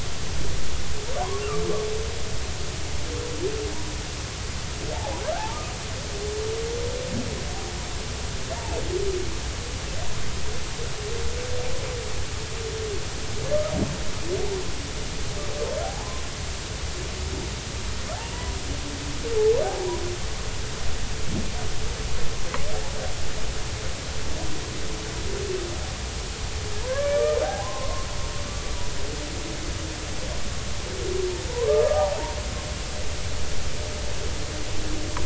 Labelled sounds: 5.3	5.6	humpback whale, 0.80 to 0.99 kHz
15.8	16.2	humpback whale, 0.80 to 1.1 kHz
26.8	28.1	humpback whale, 0.80 to 1.8 kHz
31.5	32.1	humpback whale, 0.86 to 1.3 kHz

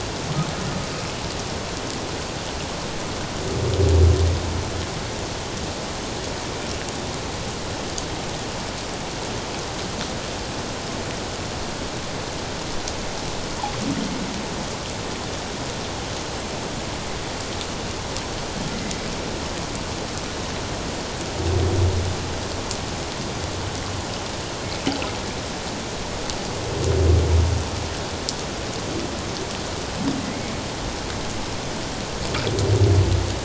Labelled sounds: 30.2	30.5	humpback whale, 2.0 to 2.3 kHz

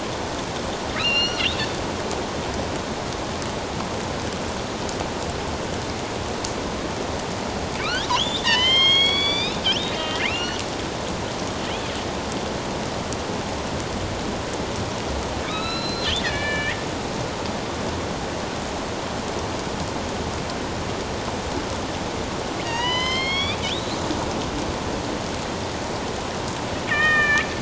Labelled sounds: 1.0	1.5	killer whale, northern resident, A clan, AB subclan, 2.4 to 5.8 kHz
7.8	10.6	killer whale, northern resident, A clan, AB subclan, 1.7 to 6.7 kHz
15.4	16.8	killer whale, northern resident, A clan, AB subclan, 1.2 to 5.5 kHz
22.6	24.0	killer whale, northern resident, A clan, AB subclan, 0.88 to 6.4 kHz
26.8	27.5	killer whale, northern resident, A clan, AB subclan, 1.1 to 3.7 kHz

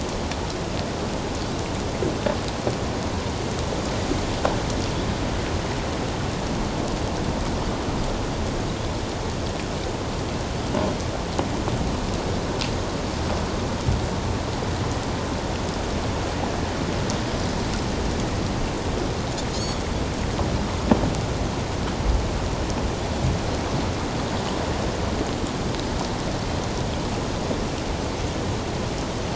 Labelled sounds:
19.5	19.8	Pacific white-sided dolphin, 3.1 to 4.5 kHz

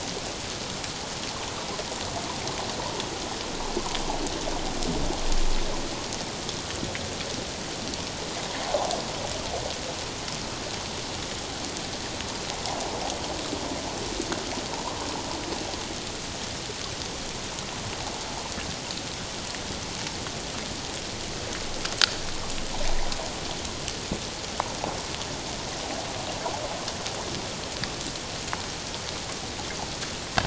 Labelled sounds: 8.6	8.9	water noise, 0.78 to 0.88 kHz

